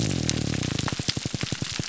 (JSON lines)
{"label": "biophony, grouper groan", "recorder": "SoundTrap 300"}